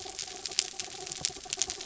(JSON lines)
{"label": "anthrophony, mechanical", "recorder": "SoundTrap 300"}